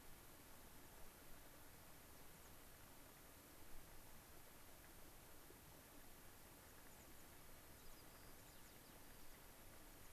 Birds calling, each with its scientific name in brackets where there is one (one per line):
American Pipit (Anthus rubescens)
White-crowned Sparrow (Zonotrichia leucophrys)